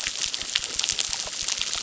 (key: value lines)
label: biophony, crackle
recorder: SoundTrap 600